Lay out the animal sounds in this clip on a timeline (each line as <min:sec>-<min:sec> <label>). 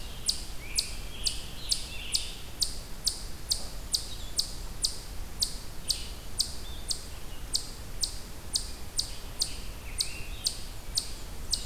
0:00.0-0:11.7 Eastern Chipmunk (Tamias striatus)
0:00.4-0:02.6 Scarlet Tanager (Piranga olivacea)
0:08.9-0:10.6 Scarlet Tanager (Piranga olivacea)